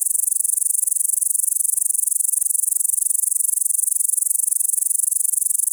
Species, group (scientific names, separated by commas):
Tettigonia cantans, Orthoptera